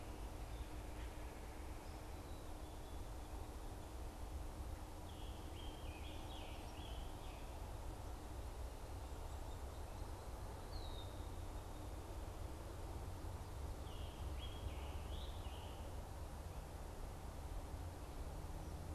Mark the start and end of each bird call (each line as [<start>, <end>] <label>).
[4.90, 7.40] Scarlet Tanager (Piranga olivacea)
[10.50, 11.20] Red-winged Blackbird (Agelaius phoeniceus)
[13.70, 15.90] Scarlet Tanager (Piranga olivacea)